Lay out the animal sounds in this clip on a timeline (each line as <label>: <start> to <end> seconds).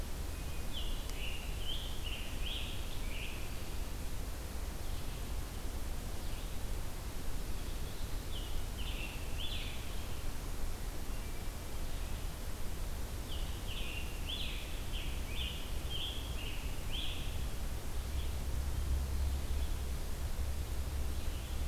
Scarlet Tanager (Piranga olivacea): 0.5 to 3.6 seconds
Scarlet Tanager (Piranga olivacea): 8.2 to 9.9 seconds
Scarlet Tanager (Piranga olivacea): 13.1 to 17.5 seconds